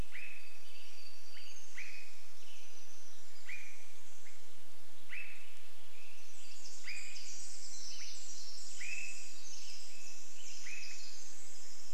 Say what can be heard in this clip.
warbler song, Western Tanager song, Swainson's Thrush call, Pacific Wren song